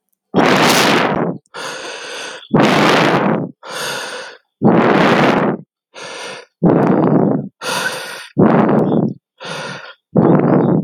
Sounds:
Sigh